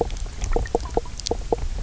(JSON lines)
{"label": "biophony, knock croak", "recorder": "SoundTrap 300"}